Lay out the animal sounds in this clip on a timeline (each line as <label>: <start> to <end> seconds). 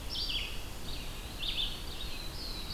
Red-eyed Vireo (Vireo olivaceus): 0.0 to 2.7 seconds
Eastern Wood-Pewee (Contopus virens): 0.7 to 1.9 seconds
Black-throated Blue Warbler (Setophaga caerulescens): 1.7 to 2.7 seconds